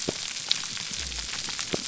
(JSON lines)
{"label": "biophony", "recorder": "SoundTrap 300"}